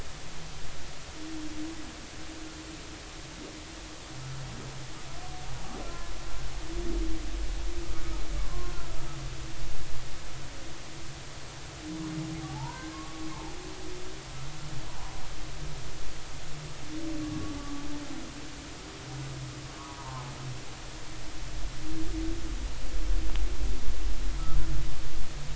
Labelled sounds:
8.4	8.7	humpback whale, 0.99 to 1.1 kHz
12.4	13.3	humpback whale, 0.80 to 1.7 kHz
17.2	17.8	humpback whale, 1.1 to 1.2 kHz
19.8	20.3	humpback whale, 0.80 to 1.3 kHz

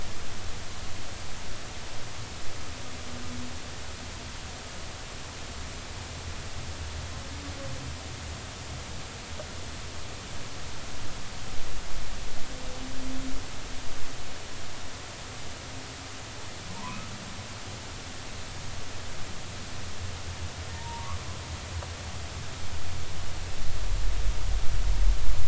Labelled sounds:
16.8	17.1	humpback whale, 0.86 to 1.3 kHz
20.7	21.1	humpback whale, 0.86 to 0.99 kHz

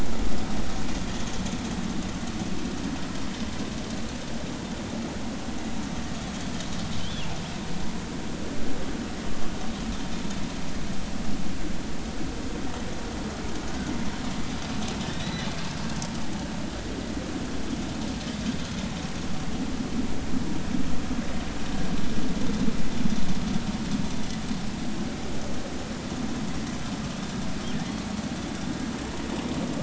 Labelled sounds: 7.0	7.3	killer whale, northern resident, G clan, GG subclan, call N28, 3.0 to 3.5 kHz
15.1	15.5	killer whale, northern resident, G clan, GG subclan, call N28, 1.8 to 4.0 kHz

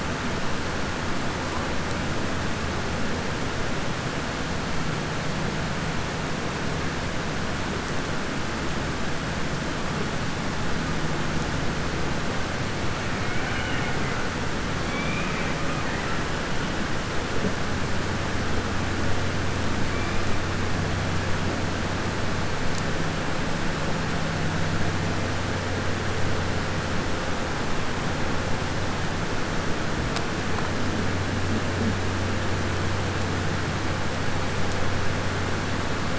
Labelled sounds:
13.2	14.0	killer whale, southern resident, 0.80 to 3.0 kHz
14.8	15.5	killer whale, southern resident, 1.3 to 3.7 kHz

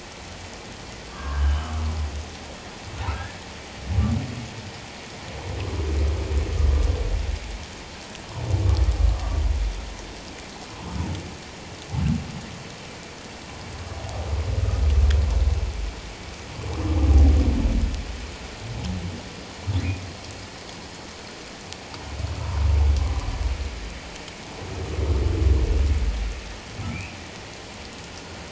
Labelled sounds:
1.1	1.7	humpback whale, 1.0 to 3.1 kHz
3.1	3.4	humpback whale, 1.5 to 1.8 kHz
26.9	27.2	humpback whale, 2.2 to 2.8 kHz

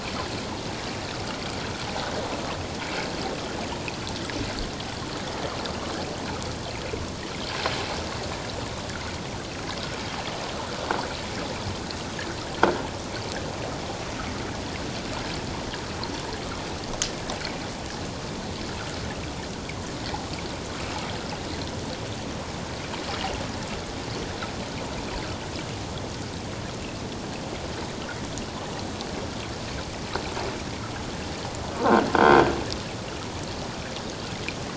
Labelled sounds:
32.1	32.4	croaking sound likely from a nearby submerged object, 1.4 to 1.6 kHz

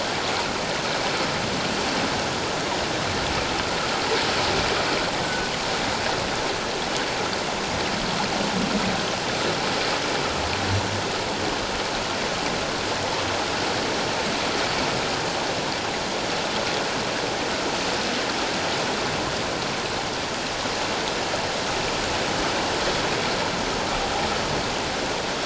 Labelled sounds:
5.2	5.5	humpback whale, 1.4 to 1.6 kHz

